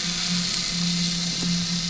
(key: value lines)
label: anthrophony, boat engine
recorder: SoundTrap 500